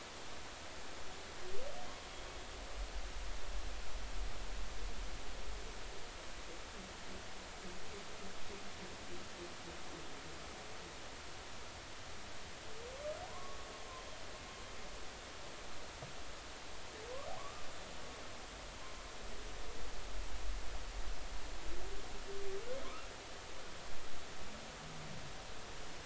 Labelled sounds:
13.3	13.6	humpback whale, 0.96 to 1.2 kHz
17.4	17.6	humpback whale, 0.99 to 1.2 kHz
22.8	23.1	humpback whale, 0.96 to 1.4 kHz

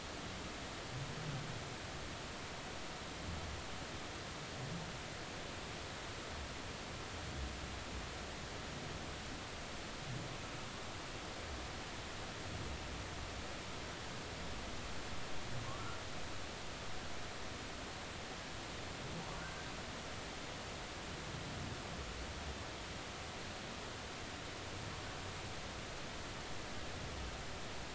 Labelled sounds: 19.4	19.7	humpback whale, 1.4 to 1.6 kHz

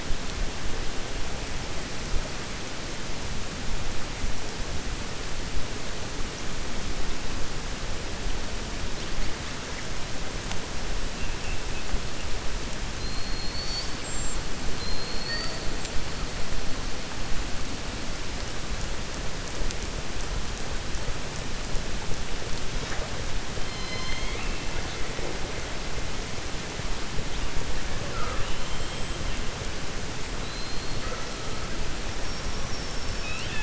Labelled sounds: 23.6	24.6	killer whale, 1.1 to 6.4 kHz
28.0	29.0	killer whale, 0.49 to 3.6 kHz
30.4	31.0	killer whale, 3.9 to 4.4 kHz

